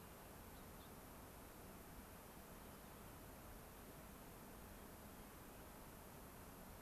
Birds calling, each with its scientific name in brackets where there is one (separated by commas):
Gray-crowned Rosy-Finch (Leucosticte tephrocotis)